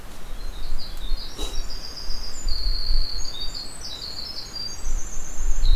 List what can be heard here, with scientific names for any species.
Troglodytes hiemalis